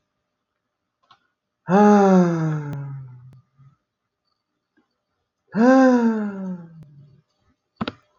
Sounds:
Sigh